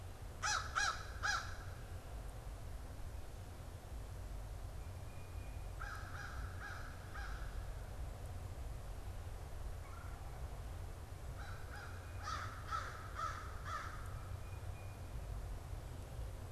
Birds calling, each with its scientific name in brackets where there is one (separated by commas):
American Crow (Corvus brachyrhynchos), Tufted Titmouse (Baeolophus bicolor)